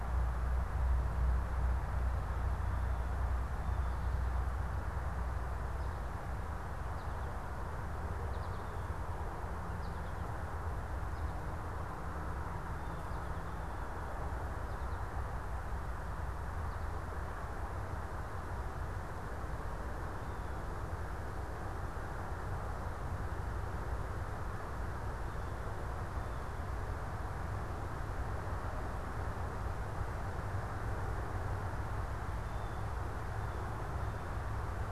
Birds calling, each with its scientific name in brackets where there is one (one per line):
Blue Jay (Cyanocitta cristata)
American Goldfinch (Spinus tristis)